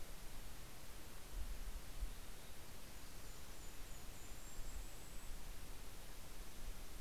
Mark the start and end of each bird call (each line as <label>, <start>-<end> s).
Golden-crowned Kinglet (Regulus satrapa), 1.8-6.4 s
Red-breasted Nuthatch (Sitta canadensis), 2.2-6.1 s